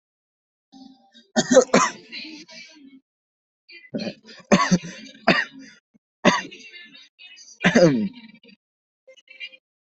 {"expert_labels": [{"quality": "good", "cough_type": "dry", "dyspnea": false, "wheezing": false, "stridor": false, "choking": false, "congestion": false, "nothing": true, "diagnosis": "upper respiratory tract infection", "severity": "mild"}], "gender": "female", "respiratory_condition": false, "fever_muscle_pain": false, "status": "COVID-19"}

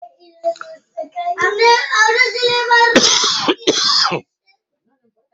{"expert_labels": [{"quality": "ok", "cough_type": "unknown", "dyspnea": false, "wheezing": false, "stridor": false, "choking": false, "congestion": false, "nothing": true, "diagnosis": "lower respiratory tract infection", "severity": "mild"}], "age": 57, "gender": "male", "respiratory_condition": false, "fever_muscle_pain": false, "status": "symptomatic"}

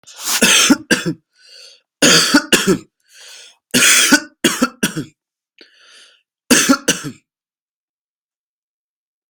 {"expert_labels": [{"quality": "good", "cough_type": "dry", "dyspnea": false, "wheezing": false, "stridor": false, "choking": false, "congestion": false, "nothing": true, "diagnosis": "COVID-19", "severity": "mild"}], "age": 19, "gender": "male", "respiratory_condition": false, "fever_muscle_pain": false, "status": "healthy"}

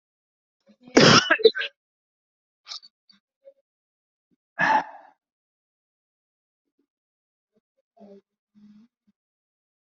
{"expert_labels": [{"quality": "ok", "cough_type": "wet", "dyspnea": false, "wheezing": false, "stridor": false, "choking": false, "congestion": false, "nothing": true, "diagnosis": "healthy cough", "severity": "pseudocough/healthy cough"}]}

